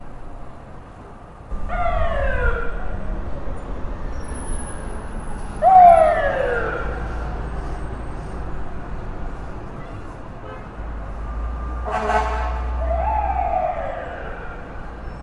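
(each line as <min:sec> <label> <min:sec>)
0:00.0 A continuous mix of car engines, footsteps, and scattered voices in a big city. 0:15.2
0:01.5 A distant siren and car engine sound echoing before fading. 0:02.8
0:04.5 Metallic scraping sound of a car turning tightly. 0:08.5
0:05.5 A loud and distinct siren of an emergency vehicle. 0:07.0
0:10.3 A car horn sounds faintly from afar. 0:11.0
0:11.8 A large vehicle horn blares loudly. 0:12.7
0:12.5 Warning beeps of a large vehicle reversing, slow, rhythmic, and high-pitched. 0:14.5
0:12.8 A loud and distinct siren from an emergency vehicle. 0:14.8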